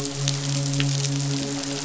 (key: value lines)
label: biophony, midshipman
recorder: SoundTrap 500